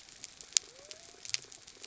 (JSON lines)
{"label": "biophony", "recorder": "SoundTrap 300"}